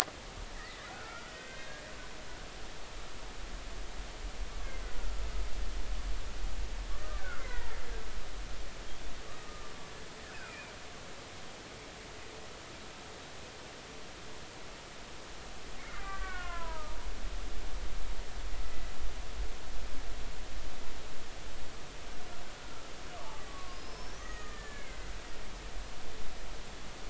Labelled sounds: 0.5	1.8	killer whale, Bigg's (transient), 1.2 to 2.2 kHz
5.0	5.2	killer whale, Bigg's (transient), 1.3 to 1.5 kHz
7.2	7.7	killer whale, Bigg's (transient), 0.90 to 2.2 kHz
9.4	9.7	killer whale, Bigg's (transient), 1.1 to 1.3 kHz
10.3	10.7	killer whale, Bigg's (transient), 2.3 to 2.6 kHz
15.8	17.0	killer whale, Bigg's (transient), 0.86 to 2.3 kHz
22.6	25.1	killer whale, Bigg's (transient), 1.0 to 5.6 kHz

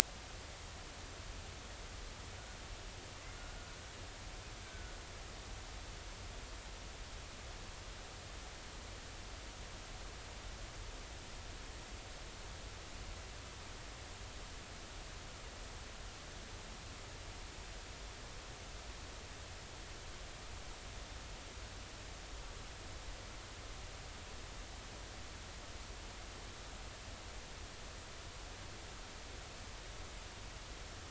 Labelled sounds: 4.6	5.0	killer whale, Bigg's (transient), 1.4 to 1.6 kHz

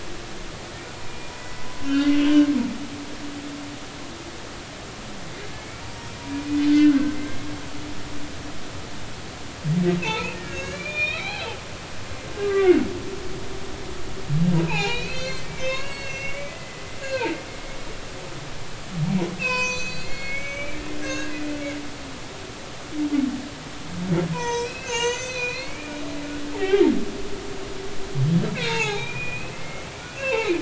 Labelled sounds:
1.0	2.5	humpback whale, 1.3 to 3.0 kHz
6.7	7.2	humpback whale, 1.4 to 1.7 kHz
10.0	11.6	humpback whale, 0.80 to 6.7 kHz
12.3	12.9	humpback whale, 1.1 to 1.7 kHz
14.5	17.3	humpback whale, 0.80 to 7.1 kHz
19.4	21.3	humpback whale, 0.93 to 7.6 kHz
24.3	25.9	humpback whale, 0.86 to 7.7 kHz
26.5	26.9	humpback whale, 0.80 to 3.3 kHz
28.6	29.9	humpback whale, 0.80 to 3.9 kHz
30.2	30.5	humpback whale, 0.80 to 2.8 kHz

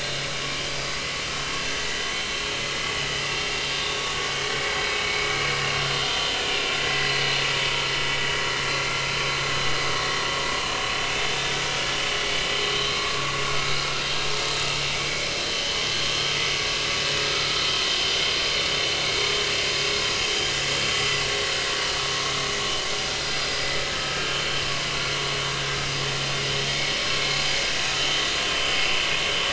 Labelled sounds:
4.1	4.4	vessel noise, 1.4 to 1.6 kHz
6.5	6.7	vessel noise, 2.3 to 2.5 kHz
9.9	10.2	vessel noise, 1.9 to 2.0 kHz
12.6	13.3	vessel noise, 1.1 to 4.0 kHz
15.5	15.8	vessel noise, 2.9 to 3.1 kHz
23.2	24.2	vessel noise, 1.2 to 4.9 kHz

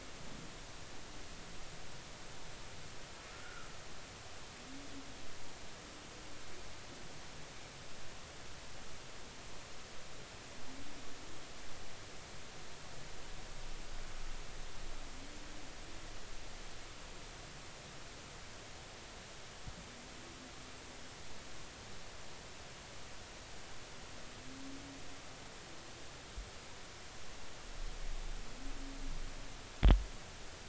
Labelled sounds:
3.3	3.7	humpback whale, 1.2 to 1.5 kHz

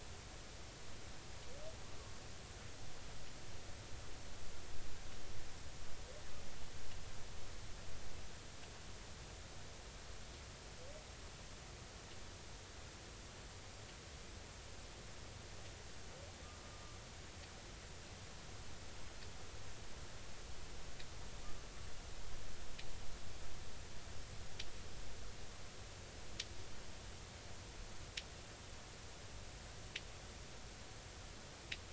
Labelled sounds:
16.4	17.0	humpback whale, 1.15 to 1.25 kHz

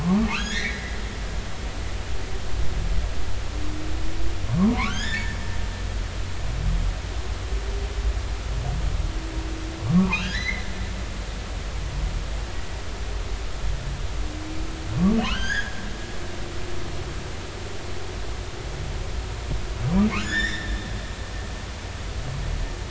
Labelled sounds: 0.0	1.0	humpback whale, 0.80 to 6.8 kHz
4.5	5.4	humpback whale, 0.86 to 5.4 kHz
9.9	10.7	humpback whale, 0.83 to 5.0 kHz
15.3	15.8	humpback whale, 1.2 to 6.9 kHz
20.2	20.8	humpback whale, 1.4 to 7.1 kHz

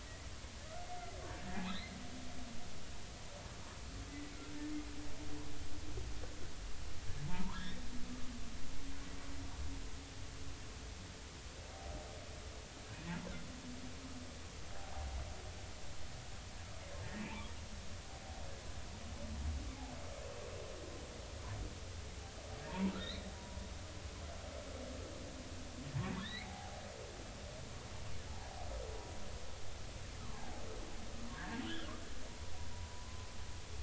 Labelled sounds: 1.6	2.0	humpback whale, 3.2 to 4.3 kHz
7.3	7.8	humpback whale, 0.86 to 3.7 kHz
17.2	17.5	humpback whale, 0.80 to 2.8 kHz
22.7	23.6	humpback whale, 0.86 to 4.4 kHz
26.2	26.8	humpback whale, 0.80 to 4.4 kHz
28.3	28.5	humpback whale, 0.80 to 0.99 kHz
31.3	31.6	humpback whale, 1.4 to 1.9 kHz
32.3	33.3	humpback whale, 0.93 to 1.1 kHz

